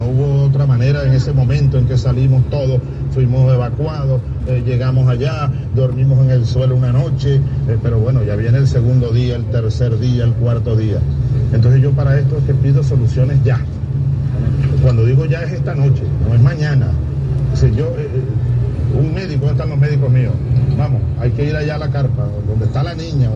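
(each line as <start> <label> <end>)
0.0 Irregular noise is heard in the background. 23.3
0.0 Man speaking in an unknown language. 23.4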